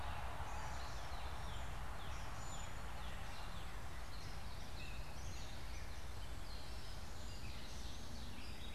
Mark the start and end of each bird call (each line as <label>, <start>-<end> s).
Cedar Waxwing (Bombycilla cedrorum), 0.0-2.9 s
Gray Catbird (Dumetella carolinensis), 0.0-8.7 s
Northern Cardinal (Cardinalis cardinalis), 1.1-3.9 s